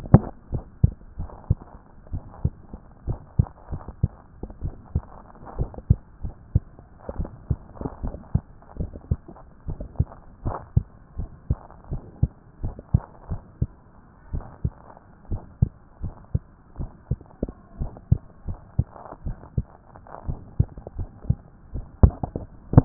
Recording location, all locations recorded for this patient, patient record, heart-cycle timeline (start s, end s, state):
tricuspid valve (TV)
aortic valve (AV)+pulmonary valve (PV)+tricuspid valve (TV)+mitral valve (MV)
#Age: Child
#Sex: Female
#Height: 124.0 cm
#Weight: 22.9 kg
#Pregnancy status: False
#Murmur: Absent
#Murmur locations: nan
#Most audible location: nan
#Systolic murmur timing: nan
#Systolic murmur shape: nan
#Systolic murmur grading: nan
#Systolic murmur pitch: nan
#Systolic murmur quality: nan
#Diastolic murmur timing: nan
#Diastolic murmur shape: nan
#Diastolic murmur grading: nan
#Diastolic murmur pitch: nan
#Diastolic murmur quality: nan
#Outcome: Normal
#Campaign: 2014 screening campaign
0.00	0.52	unannotated
0.52	0.64	S1
0.64	0.82	systole
0.82	0.92	S2
0.92	1.18	diastole
1.18	1.30	S1
1.30	1.48	systole
1.48	1.58	S2
1.58	2.12	diastole
2.12	2.24	S1
2.24	2.42	systole
2.42	2.54	S2
2.54	3.06	diastole
3.06	3.18	S1
3.18	3.38	systole
3.38	3.48	S2
3.48	3.72	diastole
3.72	3.84	S1
3.84	4.02	systole
4.02	4.08	S2
4.08	4.62	diastole
4.62	4.74	S1
4.74	4.94	systole
4.94	5.04	S2
5.04	5.58	diastole
5.58	5.70	S1
5.70	5.88	systole
5.88	5.98	S2
5.98	6.24	diastole
6.24	6.36	S1
6.36	6.54	systole
6.54	6.62	S2
6.62	7.18	diastole
7.18	7.30	S1
7.30	7.48	systole
7.48	7.58	S2
7.58	8.02	diastole
8.02	8.14	S1
8.14	8.32	systole
8.32	8.42	S2
8.42	8.78	diastole
8.78	8.90	S1
8.90	9.10	systole
9.10	9.20	S2
9.20	9.68	diastole
9.68	9.80	S1
9.80	9.98	systole
9.98	10.08	S2
10.08	10.44	diastole
10.44	10.56	S1
10.56	10.74	systole
10.74	10.86	S2
10.86	11.18	diastole
11.18	11.30	S1
11.30	11.48	systole
11.48	11.58	S2
11.58	11.90	diastole
11.90	12.02	S1
12.02	12.20	systole
12.20	12.30	S2
12.30	12.62	diastole
12.62	12.74	S1
12.74	12.92	systole
12.92	13.02	S2
13.02	13.30	diastole
13.30	13.42	S1
13.42	13.60	systole
13.60	13.70	S2
13.70	14.32	diastole
14.32	14.44	S1
14.44	14.64	systole
14.64	14.74	S2
14.74	15.30	diastole
15.30	15.42	S1
15.42	15.60	systole
15.60	15.72	S2
15.72	16.02	diastole
16.02	16.14	S1
16.14	16.32	systole
16.32	16.42	S2
16.42	16.78	diastole
16.78	16.90	S1
16.90	17.10	systole
17.10	17.20	S2
17.20	17.80	diastole
17.80	17.92	S1
17.92	18.10	systole
18.10	18.22	S2
18.22	18.48	diastole
18.48	18.58	S1
18.58	18.78	systole
18.78	18.86	S2
18.86	19.24	diastole
19.24	19.36	S1
19.36	19.56	systole
19.56	19.66	S2
19.66	20.26	diastole
20.26	20.38	S1
20.38	20.58	systole
20.58	20.68	S2
20.68	20.98	diastole
20.98	21.10	S1
21.10	21.28	systole
21.28	21.36	S2
21.36	21.74	diastole
21.74	22.85	unannotated